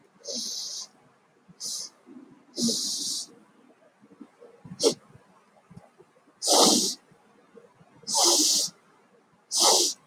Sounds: Sigh